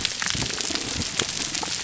{"label": "biophony, damselfish", "recorder": "SoundTrap 300"}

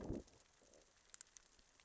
{"label": "biophony, growl", "recorder": "SoundTrap 600 or HydroMoth"}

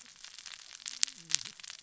{"label": "biophony, cascading saw", "recorder": "SoundTrap 600 or HydroMoth"}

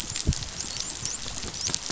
{"label": "biophony, dolphin", "recorder": "SoundTrap 500"}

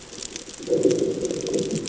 {"label": "anthrophony, bomb", "recorder": "HydroMoth"}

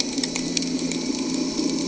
{"label": "anthrophony, boat engine", "recorder": "HydroMoth"}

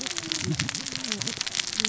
{"label": "biophony, cascading saw", "recorder": "SoundTrap 600 or HydroMoth"}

